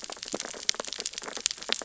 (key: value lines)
label: biophony, sea urchins (Echinidae)
recorder: SoundTrap 600 or HydroMoth